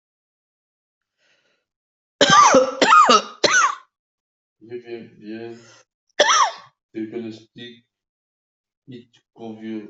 {"expert_labels": [{"quality": "good", "cough_type": "dry", "dyspnea": false, "wheezing": false, "stridor": false, "choking": false, "congestion": false, "nothing": true, "diagnosis": "lower respiratory tract infection", "severity": "severe"}]}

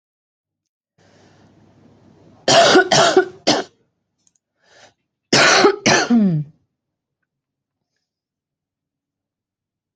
{"expert_labels": [{"quality": "good", "cough_type": "wet", "dyspnea": false, "wheezing": false, "stridor": false, "choking": false, "congestion": false, "nothing": true, "diagnosis": "upper respiratory tract infection", "severity": "mild"}], "age": 45, "gender": "female", "respiratory_condition": false, "fever_muscle_pain": false, "status": "healthy"}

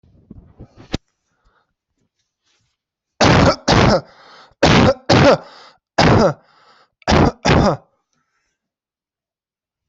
{"expert_labels": [{"quality": "poor", "cough_type": "unknown", "dyspnea": false, "wheezing": false, "stridor": false, "choking": false, "congestion": false, "nothing": false, "diagnosis": "upper respiratory tract infection", "severity": "unknown"}]}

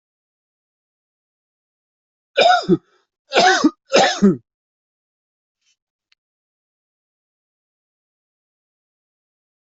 {"expert_labels": [{"quality": "ok", "cough_type": "dry", "dyspnea": false, "wheezing": false, "stridor": false, "choking": false, "congestion": false, "nothing": true, "diagnosis": "COVID-19", "severity": "mild"}], "age": 45, "gender": "male", "respiratory_condition": true, "fever_muscle_pain": false, "status": "healthy"}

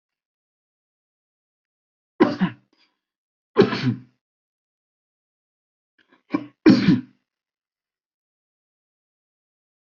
{"expert_labels": [{"quality": "good", "cough_type": "dry", "dyspnea": false, "wheezing": false, "stridor": false, "choking": false, "congestion": false, "nothing": true, "diagnosis": "upper respiratory tract infection", "severity": "mild"}]}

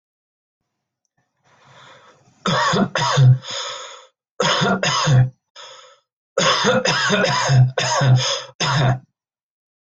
{"expert_labels": [{"quality": "good", "cough_type": "dry", "dyspnea": true, "wheezing": false, "stridor": false, "choking": false, "congestion": false, "nothing": false, "diagnosis": "COVID-19", "severity": "mild"}], "age": 39, "gender": "male", "respiratory_condition": false, "fever_muscle_pain": false, "status": "symptomatic"}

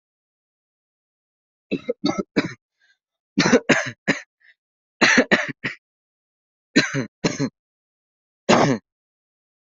{"expert_labels": [{"quality": "ok", "cough_type": "unknown", "dyspnea": false, "wheezing": false, "stridor": false, "choking": false, "congestion": false, "nothing": true, "diagnosis": "healthy cough", "severity": "pseudocough/healthy cough"}], "age": 24, "gender": "female", "respiratory_condition": true, "fever_muscle_pain": false, "status": "COVID-19"}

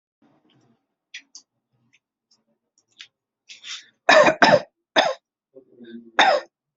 {"expert_labels": [{"quality": "good", "cough_type": "dry", "dyspnea": false, "wheezing": false, "stridor": false, "choking": false, "congestion": false, "nothing": true, "diagnosis": "upper respiratory tract infection", "severity": "pseudocough/healthy cough"}], "age": 41, "gender": "male", "respiratory_condition": true, "fever_muscle_pain": false, "status": "symptomatic"}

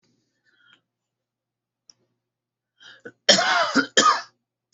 {"expert_labels": [{"quality": "ok", "cough_type": "dry", "dyspnea": false, "wheezing": false, "stridor": false, "choking": false, "congestion": false, "nothing": true, "diagnosis": "healthy cough", "severity": "pseudocough/healthy cough"}], "age": 38, "gender": "female", "respiratory_condition": true, "fever_muscle_pain": false, "status": "symptomatic"}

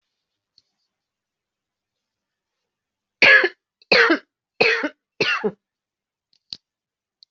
{"expert_labels": [{"quality": "ok", "cough_type": "dry", "dyspnea": false, "wheezing": false, "stridor": false, "choking": false, "congestion": false, "nothing": true, "diagnosis": "COVID-19", "severity": "mild"}], "age": 59, "gender": "female", "respiratory_condition": false, "fever_muscle_pain": true, "status": "symptomatic"}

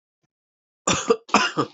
{"expert_labels": [{"quality": "good", "cough_type": "unknown", "dyspnea": false, "wheezing": false, "stridor": false, "choking": false, "congestion": false, "nothing": true, "diagnosis": "healthy cough", "severity": "pseudocough/healthy cough"}], "age": 38, "gender": "male", "respiratory_condition": true, "fever_muscle_pain": false, "status": "COVID-19"}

